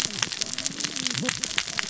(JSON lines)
{"label": "biophony, cascading saw", "recorder": "SoundTrap 600 or HydroMoth"}